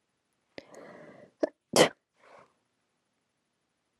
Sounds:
Sneeze